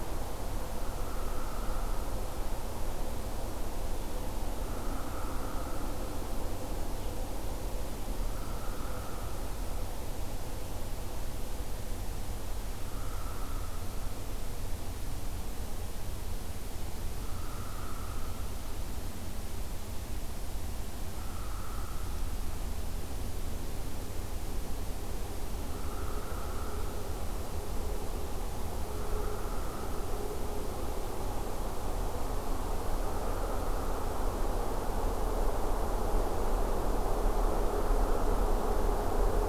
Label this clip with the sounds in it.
Hairy Woodpecker